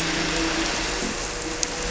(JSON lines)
{"label": "anthrophony, boat engine", "recorder": "SoundTrap 300"}